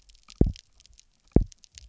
{"label": "biophony, double pulse", "recorder": "SoundTrap 300"}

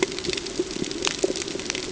{"label": "ambient", "recorder": "HydroMoth"}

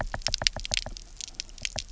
{"label": "biophony, knock", "recorder": "SoundTrap 300"}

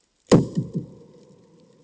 {"label": "anthrophony, bomb", "recorder": "HydroMoth"}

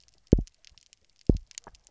{"label": "biophony, double pulse", "recorder": "SoundTrap 300"}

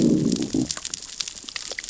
{"label": "biophony, growl", "recorder": "SoundTrap 600 or HydroMoth"}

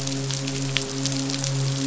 {"label": "biophony, midshipman", "recorder": "SoundTrap 500"}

